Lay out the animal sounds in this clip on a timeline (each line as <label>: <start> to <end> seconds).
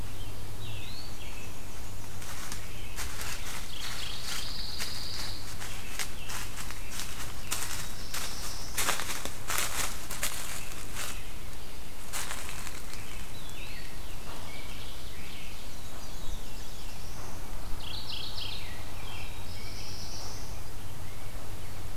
American Robin (Turdus migratorius): 0.0 to 1.6 seconds
Eastern Wood-Pewee (Contopus virens): 0.5 to 1.5 seconds
Black-and-white Warbler (Mniotilta varia): 0.7 to 2.4 seconds
American Robin (Turdus migratorius): 2.4 to 4.6 seconds
Mourning Warbler (Geothlypis philadelphia): 3.2 to 4.7 seconds
Pine Warbler (Setophaga pinus): 3.6 to 6.1 seconds
American Robin (Turdus migratorius): 5.5 to 7.9 seconds
Black-throated Blue Warbler (Setophaga caerulescens): 7.7 to 9.1 seconds
American Robin (Turdus migratorius): 10.3 to 11.2 seconds
American Robin (Turdus migratorius): 12.3 to 13.2 seconds
Eastern Wood-Pewee (Contopus virens): 13.0 to 14.2 seconds
American Robin (Turdus migratorius): 13.6 to 15.6 seconds
Black-throated Blue Warbler (Setophaga caerulescens): 15.3 to 17.8 seconds
Black-and-white Warbler (Mniotilta varia): 15.4 to 16.8 seconds
Mourning Warbler (Geothlypis philadelphia): 17.5 to 18.9 seconds
American Robin (Turdus migratorius): 18.1 to 20.2 seconds
Black-throated Blue Warbler (Setophaga caerulescens): 18.7 to 20.8 seconds